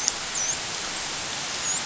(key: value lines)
label: biophony, dolphin
recorder: SoundTrap 500